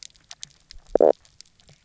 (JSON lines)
{"label": "biophony, knock croak", "recorder": "SoundTrap 300"}